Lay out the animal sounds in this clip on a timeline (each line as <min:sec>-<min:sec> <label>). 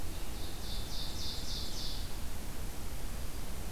0:00.0-0:02.2 Ovenbird (Seiurus aurocapilla)